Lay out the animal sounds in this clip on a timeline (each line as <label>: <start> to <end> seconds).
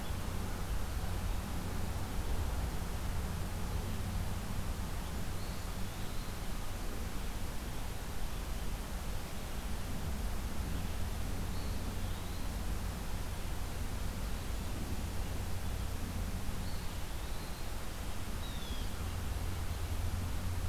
Eastern Wood-Pewee (Contopus virens): 5.3 to 6.5 seconds
Eastern Wood-Pewee (Contopus virens): 11.3 to 12.6 seconds
Eastern Wood-Pewee (Contopus virens): 16.4 to 17.8 seconds
Blue Jay (Cyanocitta cristata): 18.3 to 19.2 seconds